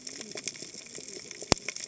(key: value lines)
label: biophony, cascading saw
recorder: HydroMoth